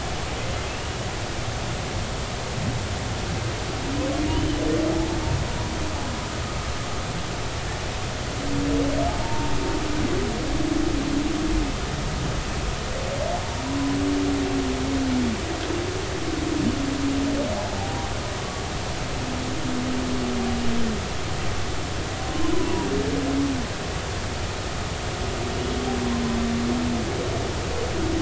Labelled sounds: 4.3	4.6	humpback whale, 2.8 to 3.1 kHz
9.1	9.6	humpback whale, 0.80 to 0.99 kHz
17.8	18.1	humpback whale, 0.80 to 0.93 kHz
18.4	18.6	humpback whale, 1.1 to 1.2 kHz
22.5	22.9	humpback whale, 0.90 to 1.1 kHz

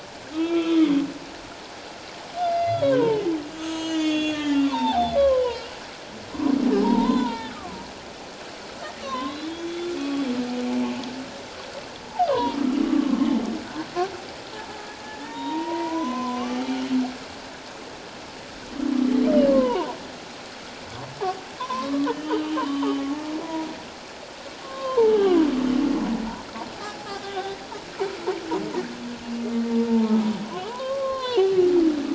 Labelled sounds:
0.3	0.9	humpback whale, 1.1 to 3.6 kHz
2.4	5.6	humpback whale, 0.78 to 7.2 kHz
6.8	7.6	humpback whale, 0.78 to 3.8 kHz
9.0	10.3	humpback whale, 0.97 to 3.5 kHz
12.3	13.3	humpback whale, 0.88 to 3.2 kHz
15.2	16.6	humpback whale, 0.88 to 3.8 kHz
19.5	20.0	humpback whale, 0.78 to 1.2 kHz
21.6	23.0	humpback whale, 0.81 to 3.2 kHz
24.6	25.4	humpback whale, 0.81 to 1.3 kHz
26.8	27.6	humpback whale, 0.78 to 3.6 kHz
29.9	30.2	humpback whale, 0.84 to 0.94 kHz
30.6	31.5	humpback whale, 0.78 to 4.3 kHz

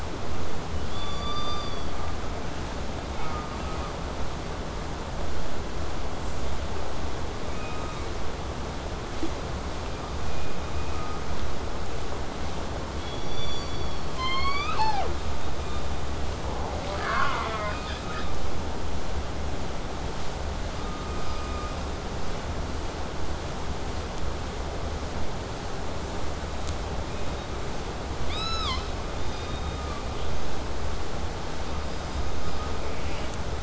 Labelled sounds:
3.1	3.9	killer whale, southern resident, J pod, call S04, 1.1 to 2.5 kHz
7.5	8.1	killer whale, southern resident, K pod, call S16, 1.1 to 3.9 kHz
13.0	14.1	killer whale, southern resident, K pod, call S16, 2.1 to 8.0 kHz
14.1	15.2	killer whale, southern resident, J pod, call S01, 0.23 to 8.0 kHz
16.8	18.4	killer whale, southern resident, 0.35 to 8.0 kHz
27.1	27.5	killer whale, southern resident, K pod, call S16, 2.3 to 3.9 kHz
28.3	28.9	killer whale, southern resident, 0.85 to 8.0 kHz
29.2	30.6	killer whale, southern resident, K pod, call S16, 0.87 to 6.6 kHz
32.9	33.3	killer whale, southern resident, J pod, call S04, 0.35 to 5.4 kHz

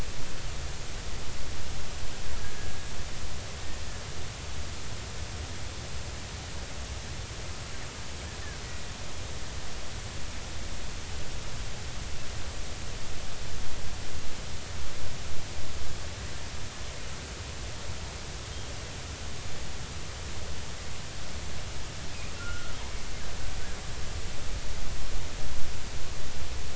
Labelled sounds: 2.4	2.7	killer whale, Bigg's (transient), 1.6 to 1.7 kHz
22.4	22.7	killer whale, Bigg's (transient), 1.2 to 1.5 kHz

